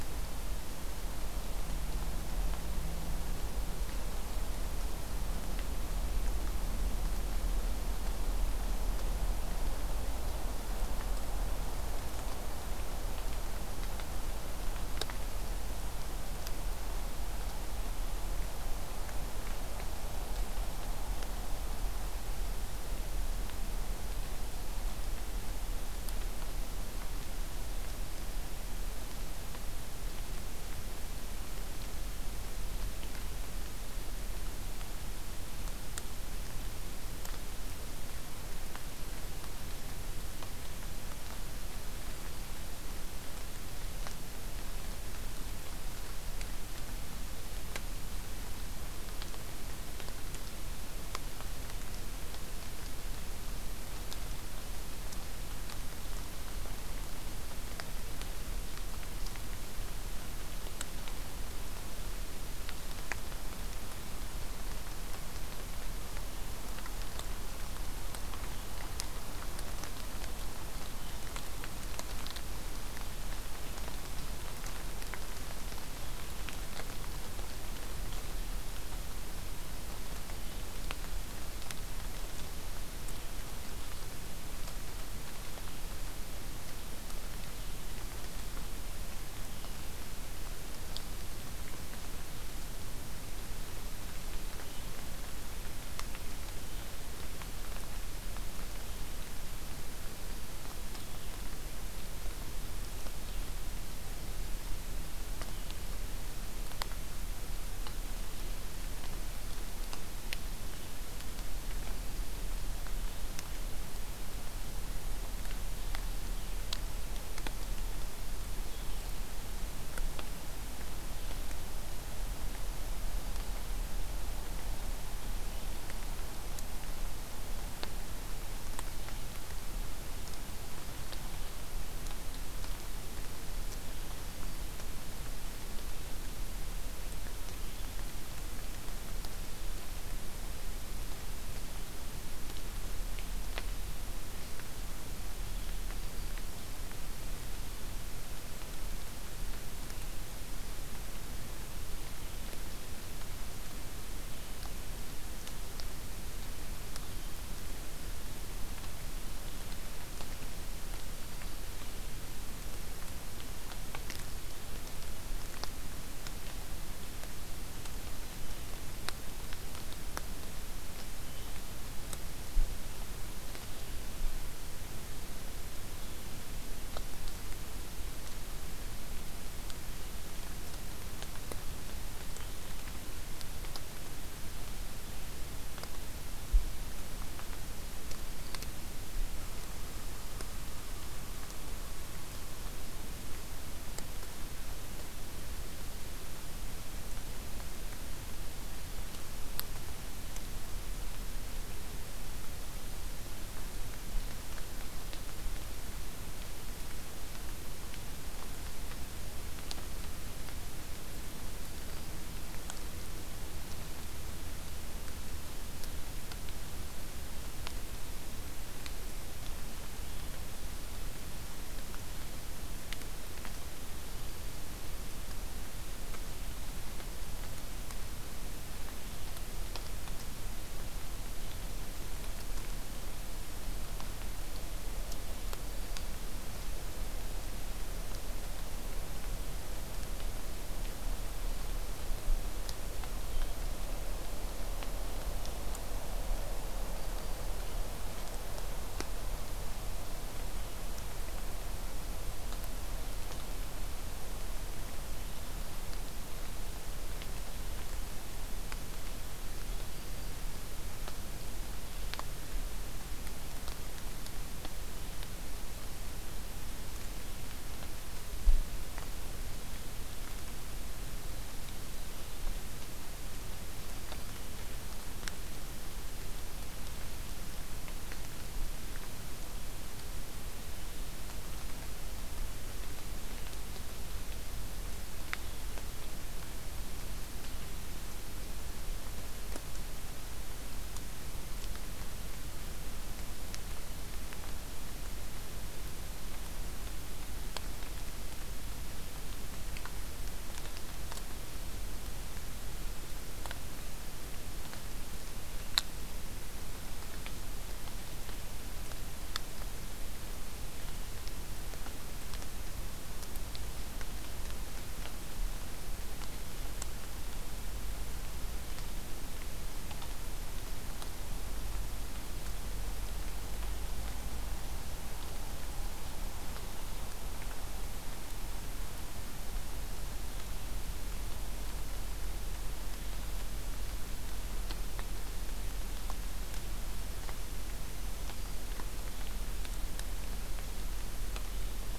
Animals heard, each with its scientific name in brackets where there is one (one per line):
Black-throated Green Warbler (Setophaga virens)